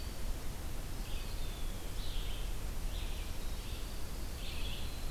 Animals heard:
Eastern Wood-Pewee (Contopus virens), Winter Wren (Troglodytes hiemalis), Red-eyed Vireo (Vireo olivaceus)

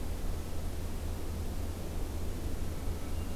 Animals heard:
Hermit Thrush (Catharus guttatus)

